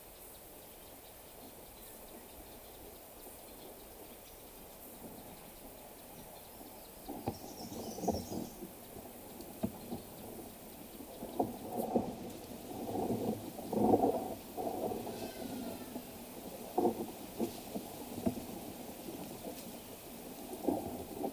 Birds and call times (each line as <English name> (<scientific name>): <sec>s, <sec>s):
Eastern Double-collared Sunbird (Cinnyris mediocris): 7.9s
Hadada Ibis (Bostrychia hagedash): 15.4s